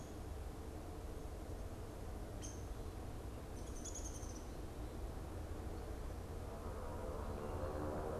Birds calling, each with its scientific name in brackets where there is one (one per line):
Downy Woodpecker (Dryobates pubescens)